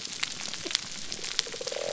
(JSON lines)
{"label": "biophony", "recorder": "SoundTrap 300"}